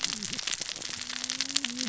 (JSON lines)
{"label": "biophony, cascading saw", "recorder": "SoundTrap 600 or HydroMoth"}